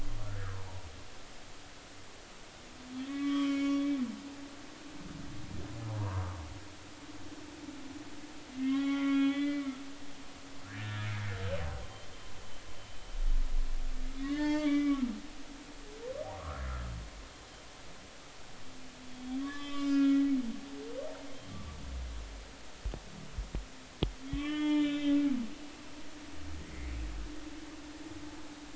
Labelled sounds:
0.2	0.9	humpback whale, 0.83 to 1.9 kHz
3.1	3.9	humpback whale, 0.99 to 3.4 kHz
6.0	6.2	humpback whale, 0.83 to 1.2 kHz
8.5	9.8	humpback whale, 1.0 to 3.5 kHz
10.7	11.1	humpback whale, 1.6 to 1.9 kHz
14.2	15.0	humpback whale, 0.83 to 4.6 kHz
16.3	16.6	humpback whale, 1.0 to 1.4 kHz
19.1	20.3	humpback whale, 1.1 to 5.2 kHz
24.3	25.2	humpback whale, 1.1 to 5.4 kHz

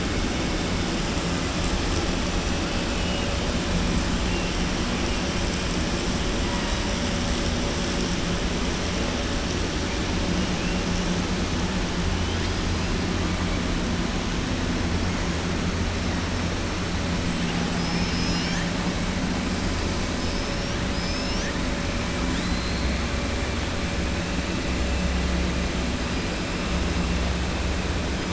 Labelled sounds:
2.9	3.3	killer whale, southern resident, 2.4 to 3.7 kHz
17.7	18.7	killer whale, southern resident, 1.6 to 7.0 kHz
20.8	21.5	killer whale, southern resident, 4.7 to 6.5 kHz
22.2	22.9	killer whale, southern resident, 3.3 to 4.4 kHz

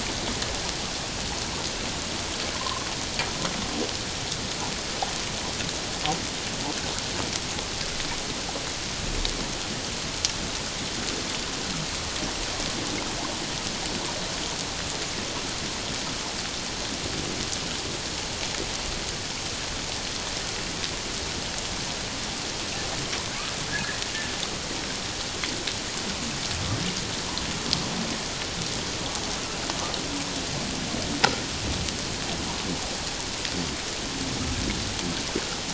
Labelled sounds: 23.7	24.0	humpback whale, 1.6 to 1.9 kHz

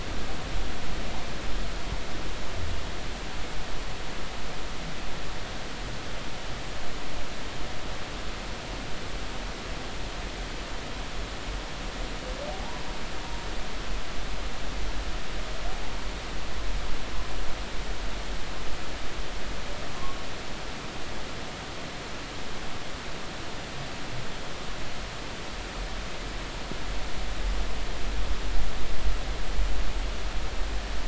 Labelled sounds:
12.5	12.8	humpback whale, 0.80 to 1.1 kHz
20.0	20.2	humpback whale, 1.0 to 1.2 kHz

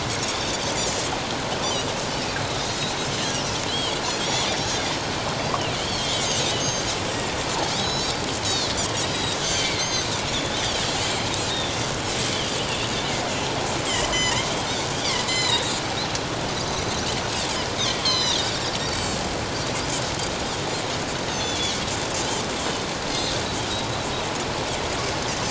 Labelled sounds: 3.7	4.5	Pacific white-sided dolphin, 2.8 to 3.5 kHz
5.8	6.9	Pacific white-sided dolphin, 2.8 to 6.5 kHz
7.7	8.7	Pacific white-sided dolphin, 3.3 to 8.0 kHz
9.0	10.8	Pacific white-sided dolphin, 3.0 to 6.5 kHz
11.5	11.8	Pacific white-sided dolphin, 3.4 to 3.8 kHz
14.1	14.5	Pacific white-sided dolphin, 1.8 to 2.2 kHz
15.2	15.8	Pacific white-sided dolphin, 1.8 to 8.0 kHz
18.0	18.4	Pacific white-sided dolphin, 1.8 to 6.4 kHz
18.8	19.2	Pacific white-sided dolphin, 4.2 to 7.8 kHz
21.3	21.7	Pacific white-sided dolphin, 3.2 to 6.3 kHz

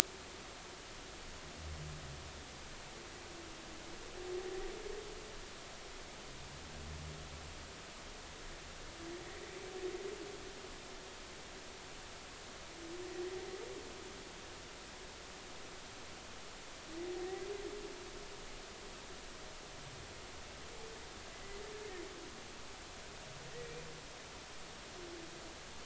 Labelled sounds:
17.2	17.5	humpback whale, 1.8 to 2.0 kHz

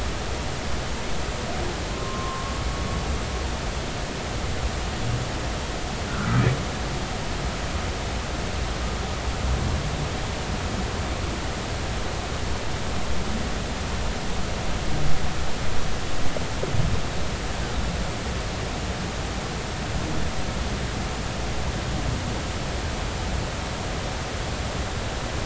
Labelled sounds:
1.9	2.5	humpback whale, 0.99 to 1.2 kHz
6.1	6.5	humpback whale, 1.2 to 1.6 kHz

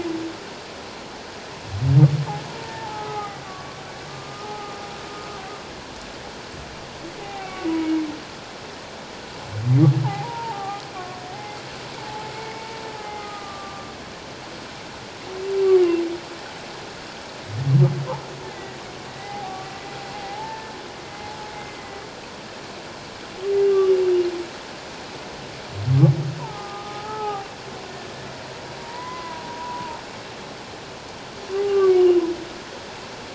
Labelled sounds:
2.5	3.8	humpback whale, 0.78 to 1.4 kHz
4.1	4.8	humpback whale, 0.78 to 1.3 kHz
7.2	7.7	humpback whale, 0.78 to 1.2 kHz
10.0	11.6	humpback whale, 0.78 to 2.2 kHz
12.0	13.9	humpback whale, 0.78 to 2.3 kHz
15.8	16.0	humpback whale, 2.7 to 2.9 kHz
18.5	18.8	humpback whale, 1.9 to 2.1 kHz
19.1	20.7	humpback whale, 0.78 to 2.1 kHz
21.5	22.0	humpback whale, 1.9 to 2.2 kHz
23.7	23.9	humpback whale, 1.1 to 1.3 kHz
26.4	27.5	humpback whale, 0.78 to 1.4 kHz
28.8	30.0	humpback whale, 0.84 to 2.1 kHz
31.6	31.9	humpback whale, 1.1 to 1.2 kHz

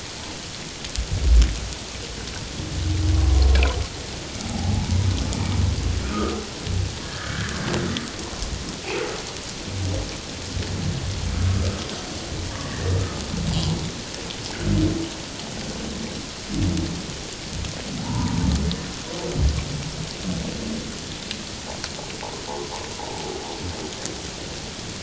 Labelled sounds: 4.4	5.6	humpback whale, 0.78 to 2.4 kHz
6.1	7.6	humpback whale, 1.2 to 1.8 kHz
8.2	8.5	humpback whale, 0.88 to 1.1 kHz
12.5	13.0	humpback whale, 1.1 to 1.9 kHz
18.0	18.4	humpback whale, 0.78 to 1.1 kHz
23.0	23.3	humpback whale, 0.78 to 0.97 kHz

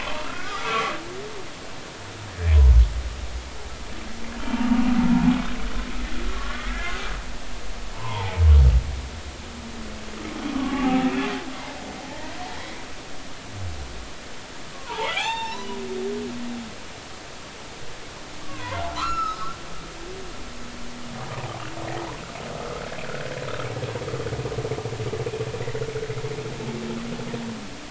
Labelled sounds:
0.3	1.0	humpback whale, 1.1 to 1.6 kHz
6.3	7.0	humpback whale, 1.1 to 2.1 kHz
7.9	8.4	humpback whale, 0.80 to 1.1 kHz
10.5	11.2	humpback whale, 0.80 to 1.3 kHz
12.1	12.3	humpback whale, 1.7 to 2.0 kHz
14.7	15.7	humpback whale, 0.80 to 7.3 kHz
18.4	19.6	humpback whale, 0.90 to 5.5 kHz

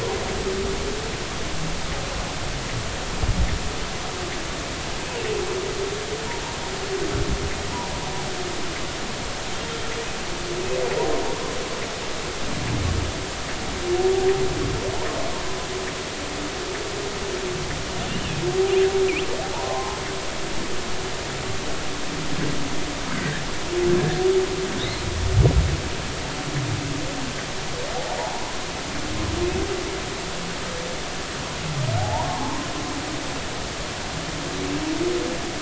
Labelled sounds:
19.5	20.0	humpback whale, 0.80 to 1.1 kHz
23.1	23.4	humpback whale, 1.5 to 2.1 kHz
28.2	28.6	humpback whale, 0.80 to 1.1 kHz
32.0	32.7	humpback whale, 0.80 to 1.1 kHz

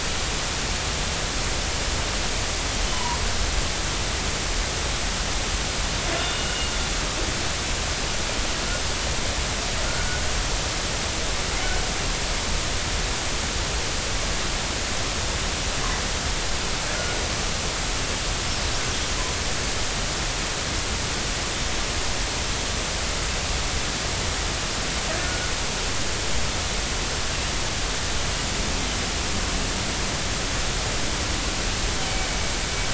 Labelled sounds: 2.8	3.2	killer whale, northern resident, G clan, 0.90 to 3.1 kHz
6.2	6.5	killer whale, northern resident, G clan, 2.8 to 3.6 kHz
25.2	25.5	killer whale, northern resident, G clan, 1.4 to 1.5 kHz

